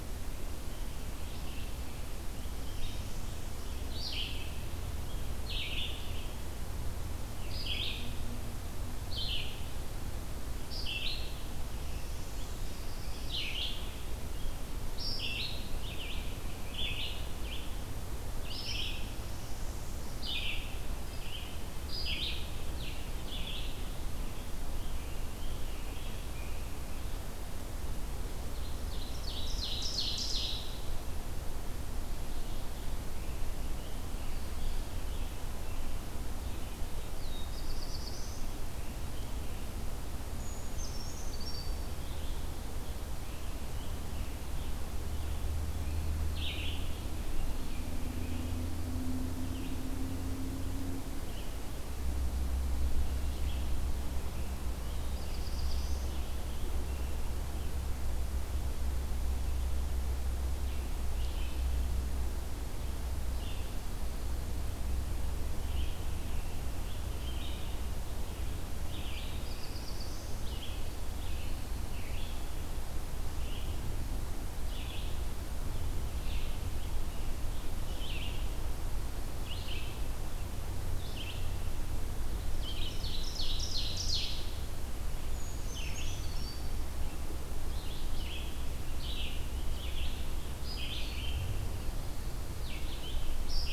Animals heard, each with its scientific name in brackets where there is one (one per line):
Ovenbird (Seiurus aurocapilla)
Red-eyed Vireo (Vireo olivaceus)
Black-throated Blue Warbler (Setophaga caerulescens)
Scarlet Tanager (Piranga olivacea)
Brown Creeper (Certhia americana)
Northern Parula (Setophaga americana)